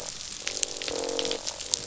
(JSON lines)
{"label": "biophony, croak", "recorder": "SoundTrap 500"}